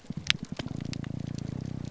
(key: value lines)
label: biophony, grouper groan
recorder: SoundTrap 300